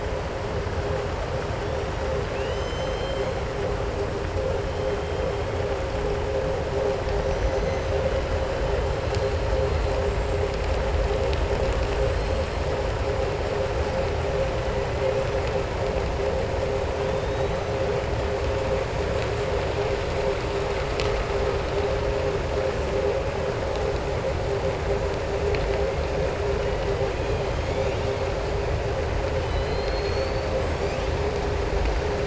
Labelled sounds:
2.2	3.3	killer whale, southern resident, 1.9 to 7.5 kHz
29.4	30.5	killer whale, southern resident, 2.0 to 5.0 kHz

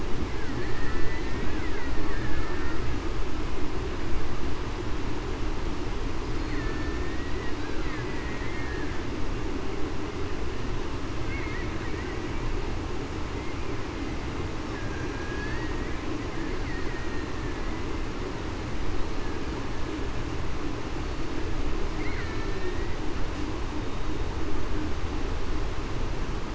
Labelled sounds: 0.6	1.3	killer whale, Bigg's (transient), 1.7 to 2.1 kHz
2.1	2.8	killer whale, Bigg's (transient), 1.6 to 1.9 kHz
6.6	7.0	killer whale, Bigg's (transient), 1.7 to 1.9 kHz
8.0	8.4	killer whale, Bigg's (transient), 1.9 to 2.0 kHz
15.1	15.9	killer whale, Bigg's (transient), 1.6 to 2.1 kHz
22.5	23.0	killer whale, Bigg's (transient), 1.8 to 2.0 kHz

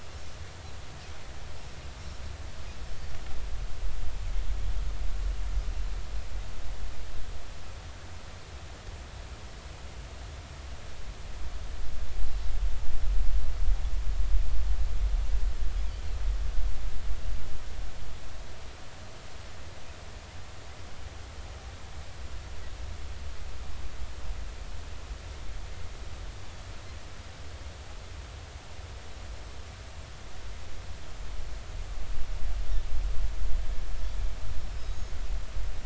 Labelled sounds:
34.8	35.1	Pacific white-sided dolphin, 6.4 to 6.7 kHz

